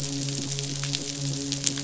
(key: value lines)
label: biophony, midshipman
recorder: SoundTrap 500